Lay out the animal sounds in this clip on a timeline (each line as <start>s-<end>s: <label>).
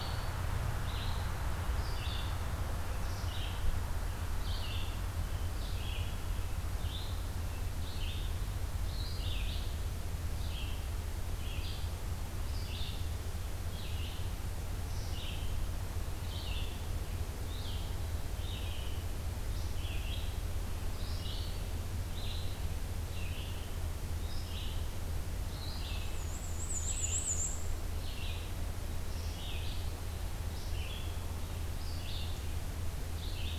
0.0s-22.6s: Red-eyed Vireo (Vireo olivaceus)
23.0s-33.6s: Red-eyed Vireo (Vireo olivaceus)
25.8s-27.7s: Black-and-white Warbler (Mniotilta varia)